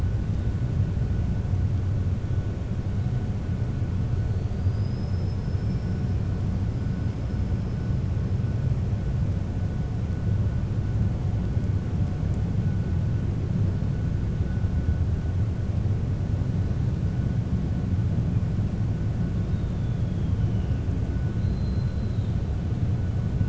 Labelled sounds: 4.4	6.0	killer whale, 4.4 to 5.6 kHz
19.5	20.3	killer whale, 3.2 to 4.4 kHz
21.3	22.3	killer whale, 3.1 to 4.2 kHz

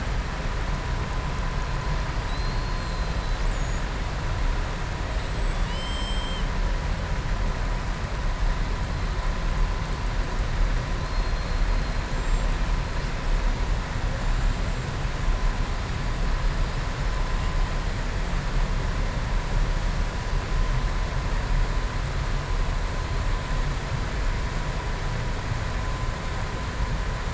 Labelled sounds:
2.2	3.4	killer whale, southern resident, 3.8 to 4.9 kHz
5.3	6.5	killer whale, southern resident, 2.1 to 7.9 kHz
11.0	11.5	killer whale, southern resident, 3.3 to 4.4 kHz

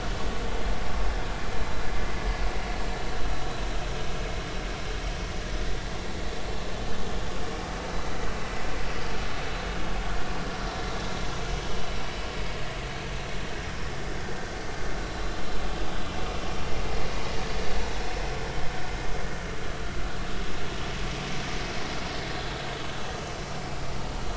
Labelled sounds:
15.0	15.3	vessel noise, 3.9 to 4.1 kHz

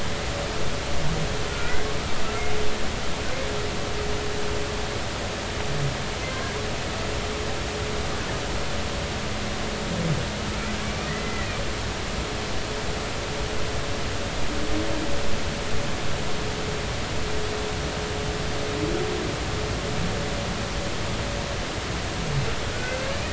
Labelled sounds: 1.5	1.9	humpback whale, 1.3 to 1.6 kHz
10.8	11.5	humpback whale, 1.8 to 2.5 kHz
22.7	23.1	humpback whale, 1.4 to 1.7 kHz

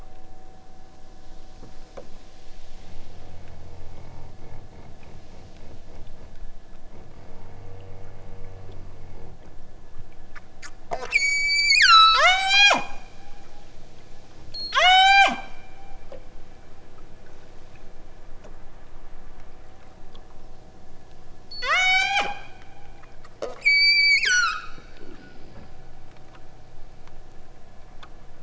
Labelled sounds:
10.9	12.9	killer whale, southern Alaska resident, 0.27 to 8.0 kHz
14.6	15.4	killer whale, southern Alaska resident, 0.17 to 8.0 kHz
21.4	22.4	killer whale, southern Alaska resident, 0.20 to 8.0 kHz
23.6	24.8	killer whale, southern Alaska resident, 0.64 to 8.0 kHz

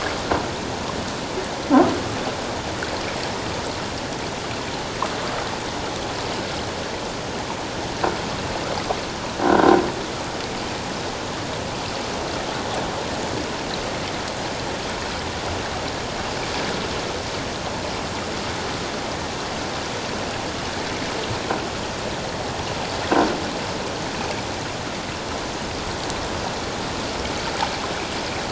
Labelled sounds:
9.4	9.7	croaking sound likely from a nearby submerged object, 1.3 to 1.6 kHz

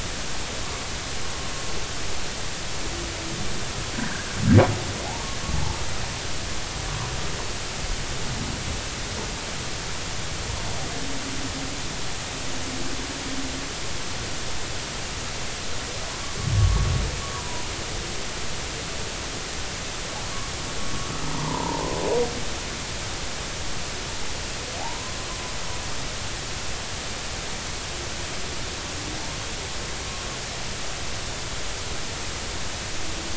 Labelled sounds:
3.9	4.3	humpback whale, 1.4 to 1.8 kHz
16.6	17.7	humpback whale, 0.93 to 1.2 kHz
21.3	22.0	humpback whale, 0.86 to 1.2 kHz
24.8	25.2	humpback whale, 0.80 to 1.1 kHz

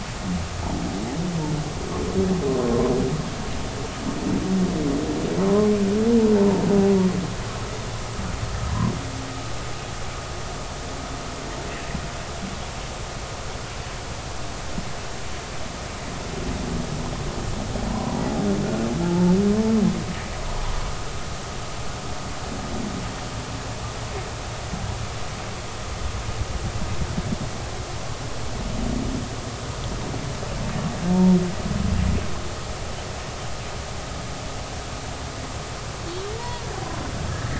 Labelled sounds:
5.5	5.7	humpback whale, 0.96 to 1.1 kHz
17.9	18.2	humpback whale, 0.93 to 1.1 kHz
19.0	19.3	humpback whale, 0.83 to 0.93 kHz
36.4	36.6	humpback whale, 0.90 to 1.0 kHz

